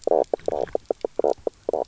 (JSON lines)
{"label": "biophony, knock croak", "recorder": "SoundTrap 300"}